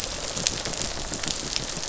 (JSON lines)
{"label": "biophony", "recorder": "SoundTrap 500"}